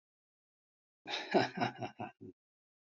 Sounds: Laughter